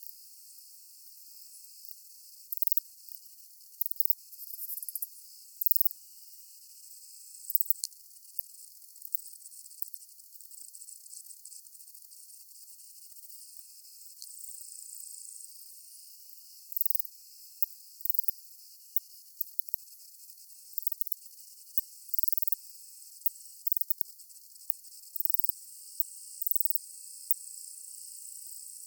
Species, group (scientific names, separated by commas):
Ancistrura nigrovittata, Orthoptera